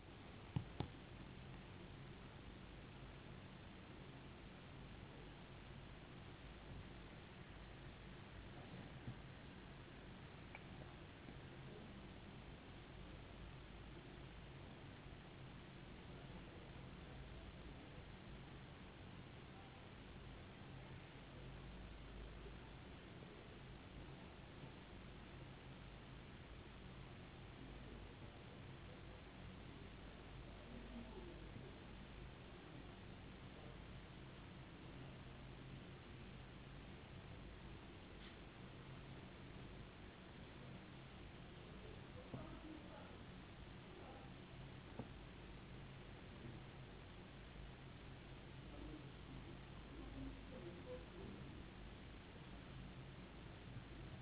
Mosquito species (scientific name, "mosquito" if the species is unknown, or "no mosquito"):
no mosquito